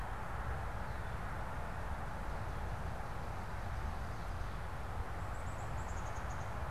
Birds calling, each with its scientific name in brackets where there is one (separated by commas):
Downy Woodpecker (Dryobates pubescens)